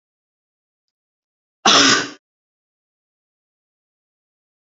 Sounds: Cough